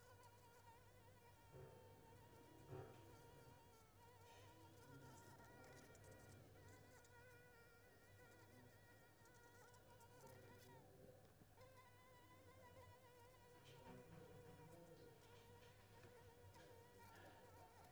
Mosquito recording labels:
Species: Anopheles squamosus; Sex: female; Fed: unfed; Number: one; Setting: cup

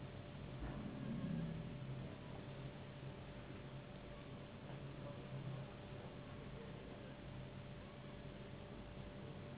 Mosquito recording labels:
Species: Anopheles gambiae s.s.; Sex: female; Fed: unfed; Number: one; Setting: insect culture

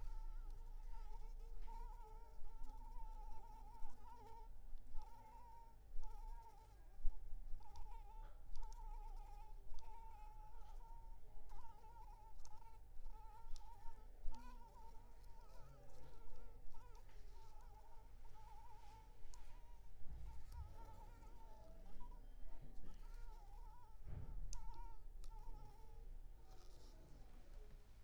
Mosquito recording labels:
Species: Anopheles maculipalpis; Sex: female; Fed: unfed; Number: one; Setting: cup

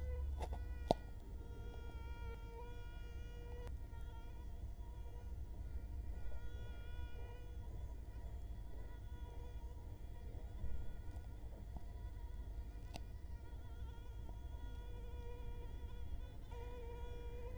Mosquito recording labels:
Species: Culex quinquefasciatus; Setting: cup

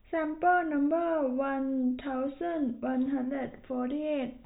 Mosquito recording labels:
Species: no mosquito; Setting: cup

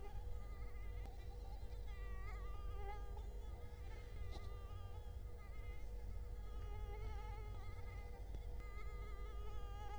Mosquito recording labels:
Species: Culex quinquefasciatus; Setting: cup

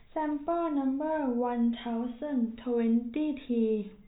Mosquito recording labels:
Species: no mosquito; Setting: cup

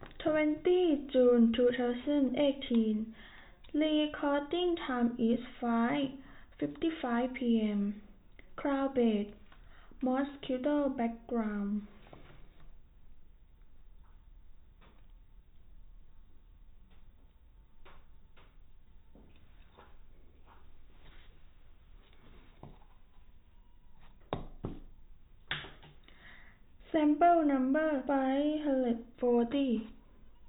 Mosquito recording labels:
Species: no mosquito; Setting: cup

